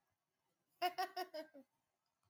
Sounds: Laughter